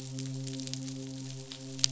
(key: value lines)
label: biophony, midshipman
recorder: SoundTrap 500